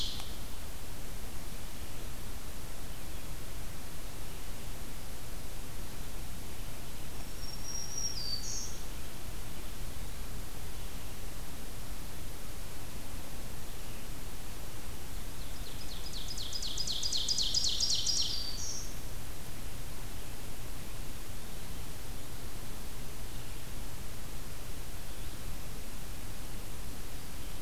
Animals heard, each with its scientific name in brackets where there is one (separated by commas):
Black-throated Green Warbler (Setophaga virens), Ovenbird (Seiurus aurocapilla)